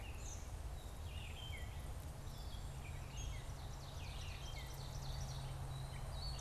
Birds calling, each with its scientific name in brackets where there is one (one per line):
Ovenbird (Seiurus aurocapilla)
Gray Catbird (Dumetella carolinensis)
Red-eyed Vireo (Vireo olivaceus)